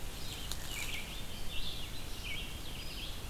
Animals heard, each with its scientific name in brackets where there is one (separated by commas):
Red-eyed Vireo (Vireo olivaceus)